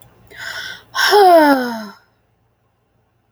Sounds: Sigh